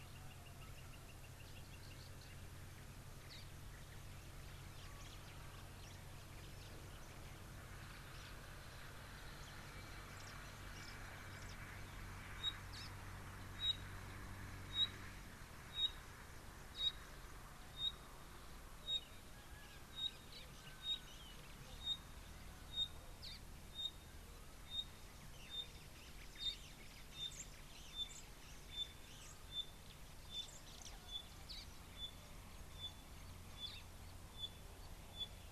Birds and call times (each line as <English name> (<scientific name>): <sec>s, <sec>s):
Pygmy Batis (Batis perkeo): 15.8s, 21.9s, 27.9s, 34.3s
Parrot-billed Sparrow (Passer gongonensis): 23.2s, 31.5s
White-bellied Canary (Crithagra dorsostriata): 27.3s